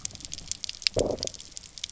{"label": "biophony, low growl", "recorder": "SoundTrap 300"}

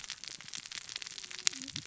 {"label": "biophony, cascading saw", "recorder": "SoundTrap 600 or HydroMoth"}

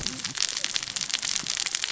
{"label": "biophony, cascading saw", "recorder": "SoundTrap 600 or HydroMoth"}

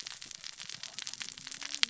{"label": "biophony, cascading saw", "recorder": "SoundTrap 600 or HydroMoth"}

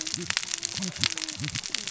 {"label": "biophony, cascading saw", "recorder": "SoundTrap 600 or HydroMoth"}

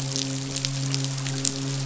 {"label": "biophony, midshipman", "recorder": "SoundTrap 500"}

